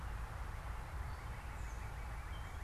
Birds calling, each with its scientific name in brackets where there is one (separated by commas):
unidentified bird, Northern Cardinal (Cardinalis cardinalis)